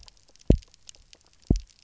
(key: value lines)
label: biophony, double pulse
recorder: SoundTrap 300